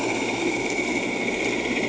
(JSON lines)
{"label": "anthrophony, boat engine", "recorder": "HydroMoth"}